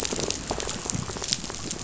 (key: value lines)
label: biophony, rattle
recorder: SoundTrap 500